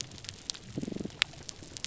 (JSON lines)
{"label": "biophony, damselfish", "recorder": "SoundTrap 300"}